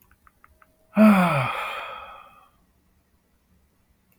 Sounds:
Sigh